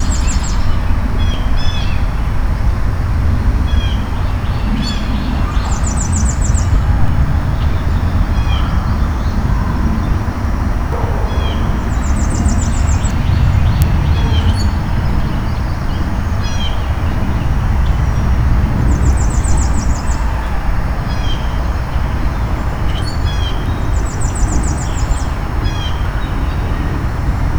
Are there people jumping in the water?
no